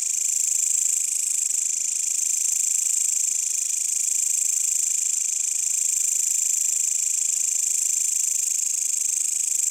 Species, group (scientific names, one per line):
Mecopoda elongata
Orthoptera